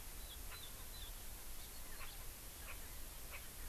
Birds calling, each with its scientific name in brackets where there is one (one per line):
Erckel's Francolin (Pternistis erckelii)